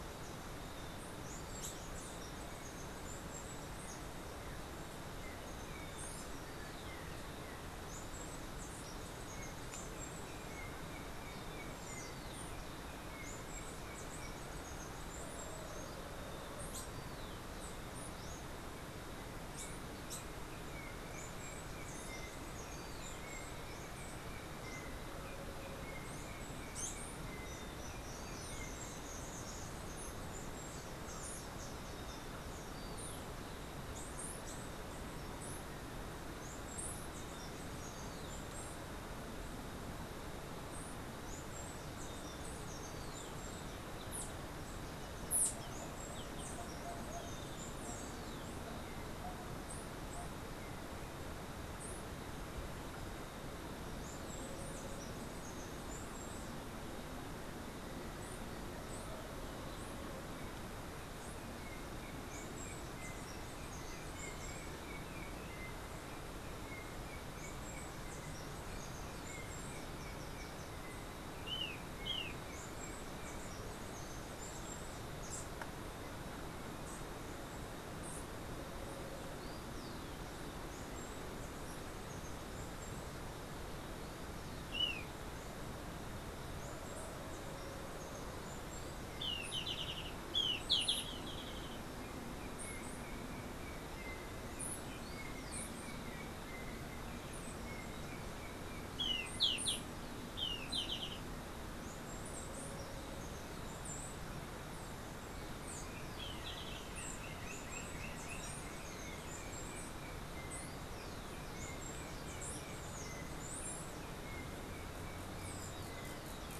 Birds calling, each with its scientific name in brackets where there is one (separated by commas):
Black-capped Tanager (Stilpnia heinei), Steely-vented Hummingbird (Saucerottia saucerottei), Roadside Hawk (Rupornis magnirostris), Yellow-backed Oriole (Icterus chrysater), Golden-faced Tyrannulet (Zimmerius chrysops)